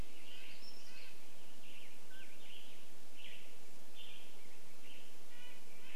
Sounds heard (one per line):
Western Tanager song
Red-breasted Nuthatch song
Mountain Quail call
Black-headed Grosbeak song
unidentified sound